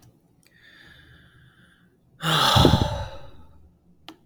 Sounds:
Sigh